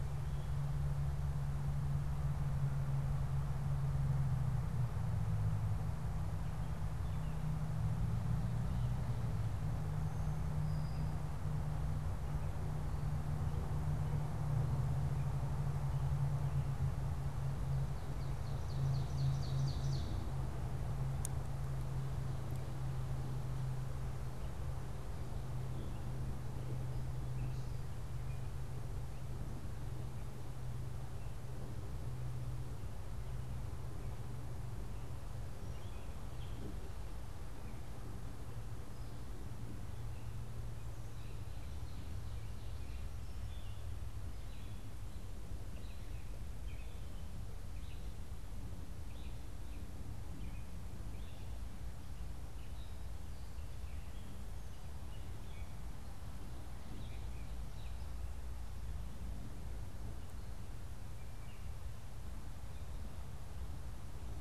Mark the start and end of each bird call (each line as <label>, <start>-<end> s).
Brown-headed Cowbird (Molothrus ater), 9.9-11.4 s
Ovenbird (Seiurus aurocapilla), 17.4-20.4 s
Gray Catbird (Dumetella carolinensis), 24.1-31.5 s
Gray Catbird (Dumetella carolinensis), 35.1-36.7 s
Gray Catbird (Dumetella carolinensis), 37.4-61.9 s